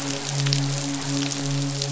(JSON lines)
{"label": "biophony, midshipman", "recorder": "SoundTrap 500"}